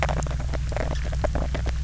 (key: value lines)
label: biophony, knock croak
recorder: SoundTrap 300